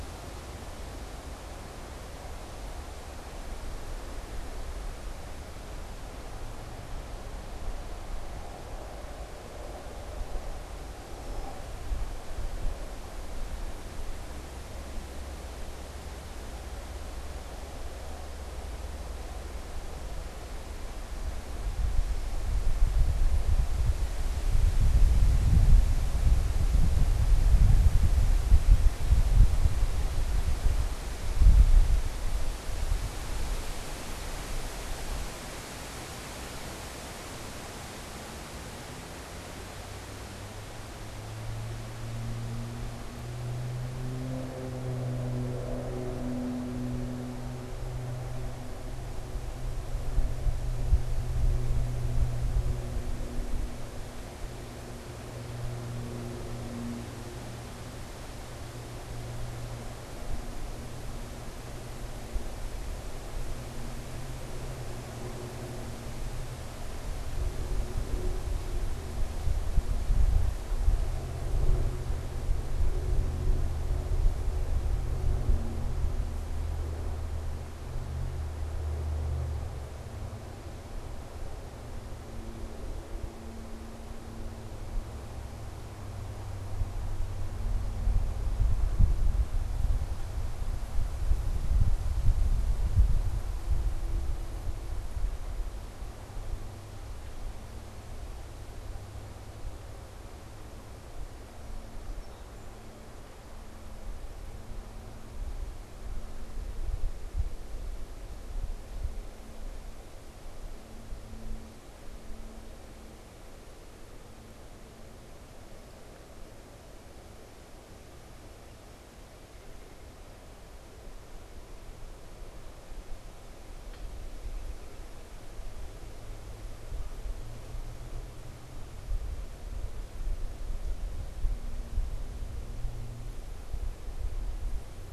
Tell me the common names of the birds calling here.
Red-winged Blackbird, Song Sparrow, unidentified bird